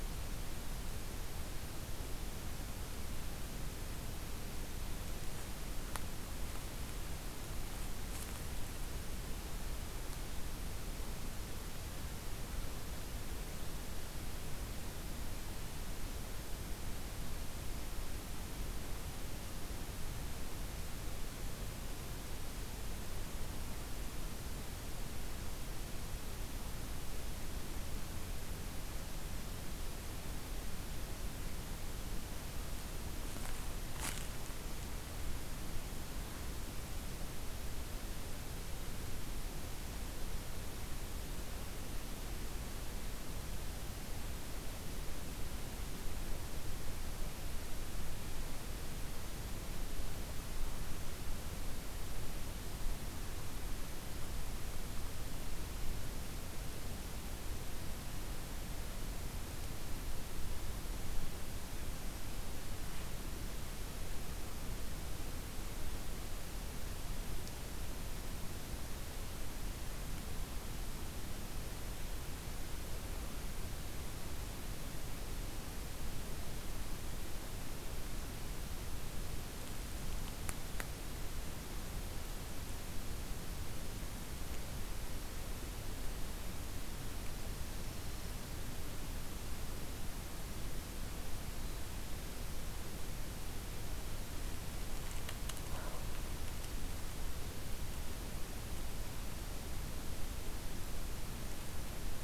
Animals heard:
forest ambience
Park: Hubbard Brook Experimental Forest